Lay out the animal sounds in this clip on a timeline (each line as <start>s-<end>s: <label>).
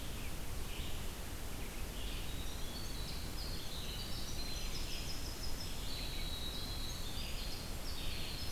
0.0s-8.5s: Red-eyed Vireo (Vireo olivaceus)
2.0s-8.5s: Winter Wren (Troglodytes hiemalis)
8.0s-8.5s: Scarlet Tanager (Piranga olivacea)